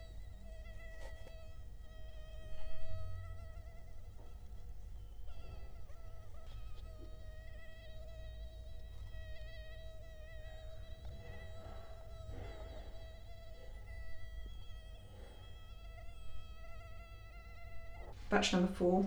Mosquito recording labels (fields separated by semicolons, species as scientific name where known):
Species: Culex quinquefasciatus; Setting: cup